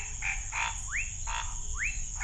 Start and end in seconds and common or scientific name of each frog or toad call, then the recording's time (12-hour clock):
0.2	2.2	Scinax fuscovarius
0.9	2.2	rufous frog
9:00pm